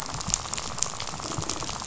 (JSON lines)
{"label": "biophony, rattle", "recorder": "SoundTrap 500"}